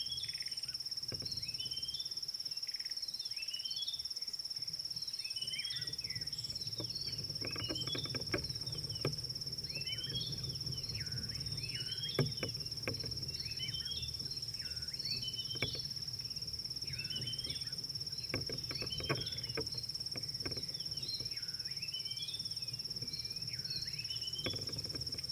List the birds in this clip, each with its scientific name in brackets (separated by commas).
Red-backed Scrub-Robin (Cercotrichas leucophrys), Klaas's Cuckoo (Chrysococcyx klaas)